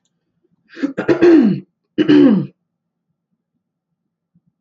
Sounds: Throat clearing